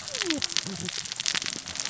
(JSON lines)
{"label": "biophony, cascading saw", "recorder": "SoundTrap 600 or HydroMoth"}